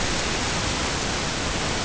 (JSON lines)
{"label": "ambient", "recorder": "HydroMoth"}